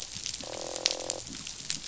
{"label": "biophony, croak", "recorder": "SoundTrap 500"}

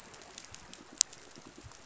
{"label": "biophony, chatter", "recorder": "SoundTrap 500"}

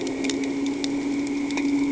{"label": "anthrophony, boat engine", "recorder": "HydroMoth"}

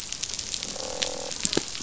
{"label": "biophony, croak", "recorder": "SoundTrap 500"}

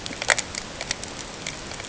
{"label": "ambient", "recorder": "HydroMoth"}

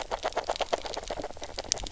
{"label": "biophony, grazing", "recorder": "SoundTrap 300"}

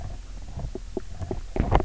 {"label": "biophony, knock croak", "recorder": "SoundTrap 300"}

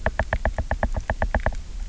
{"label": "biophony, knock", "recorder": "SoundTrap 300"}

